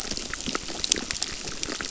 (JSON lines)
{"label": "biophony, crackle", "recorder": "SoundTrap 600"}